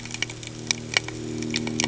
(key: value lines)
label: anthrophony, boat engine
recorder: HydroMoth